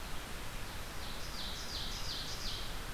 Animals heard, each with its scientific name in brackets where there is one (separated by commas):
Ovenbird (Seiurus aurocapilla)